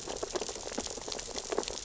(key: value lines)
label: biophony, sea urchins (Echinidae)
recorder: SoundTrap 600 or HydroMoth